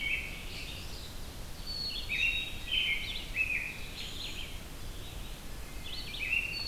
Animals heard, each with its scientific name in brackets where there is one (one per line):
American Robin (Turdus migratorius)
Red-eyed Vireo (Vireo olivaceus)
Black-capped Chickadee (Poecile atricapillus)